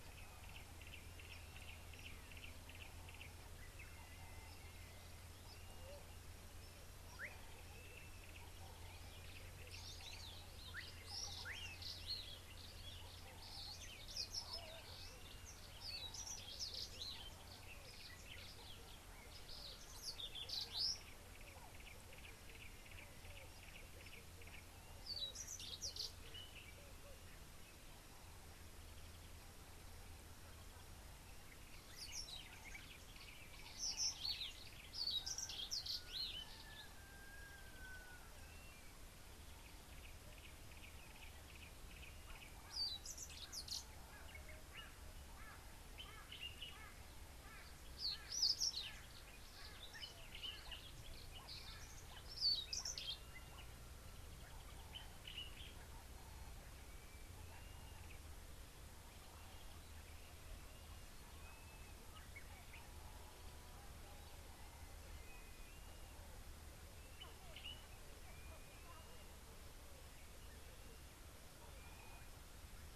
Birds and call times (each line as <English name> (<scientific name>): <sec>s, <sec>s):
Yellow-breasted Apalis (Apalis flavida): 1.6s, 22.2s, 41.1s
Southern Fiscal (Lanius collaris): 4.3s
Slate-colored Boubou (Laniarius funebris): 7.3s
Brimstone Canary (Crithagra sulphurata): 14.2s, 25.8s, 34.3s, 52.5s
White-bellied Go-away-bird (Corythaixoides leucogaster): 45.5s, 46.8s
Common Bulbul (Pycnonotus barbatus): 55.3s